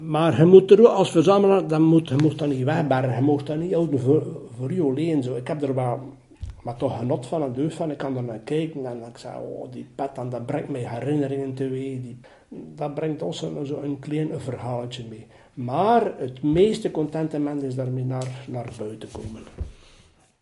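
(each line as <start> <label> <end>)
0.1 A grown man speaking calmly and loudly in a foreign language. 20.4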